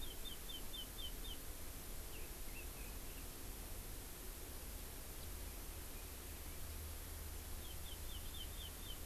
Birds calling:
Chinese Hwamei (Garrulax canorus)

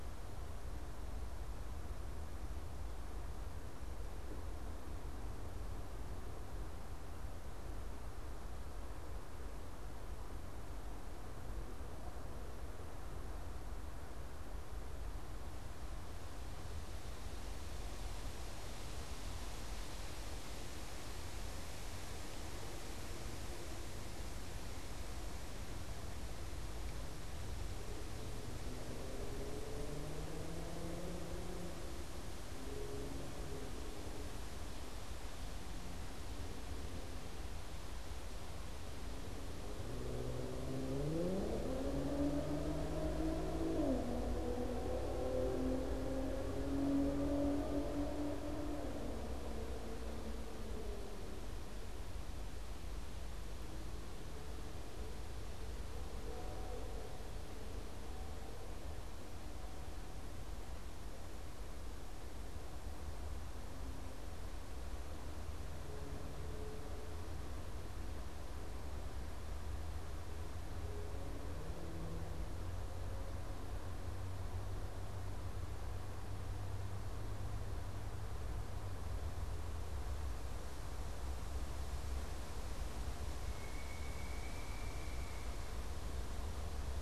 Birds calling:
Pileated Woodpecker (Dryocopus pileatus)

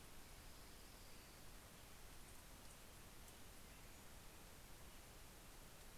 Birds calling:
Orange-crowned Warbler (Leiothlypis celata)
Pacific-slope Flycatcher (Empidonax difficilis)

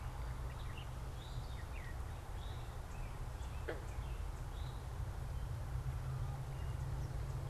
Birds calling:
Eastern Towhee (Pipilo erythrophthalmus)

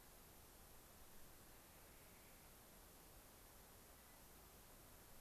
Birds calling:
unidentified bird
Clark's Nutcracker (Nucifraga columbiana)

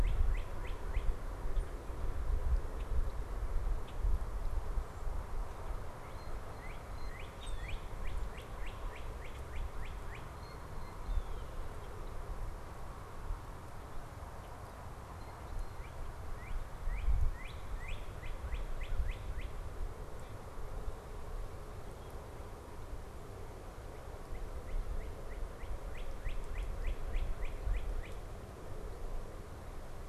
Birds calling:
Common Grackle (Quiscalus quiscula)
Northern Cardinal (Cardinalis cardinalis)
Blue Jay (Cyanocitta cristata)
American Crow (Corvus brachyrhynchos)

